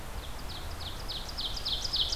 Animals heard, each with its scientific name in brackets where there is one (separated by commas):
Ovenbird (Seiurus aurocapilla)